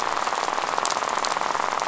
{"label": "biophony, rattle", "recorder": "SoundTrap 500"}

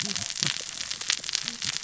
{"label": "biophony, cascading saw", "recorder": "SoundTrap 600 or HydroMoth"}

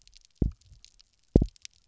{"label": "biophony, double pulse", "recorder": "SoundTrap 300"}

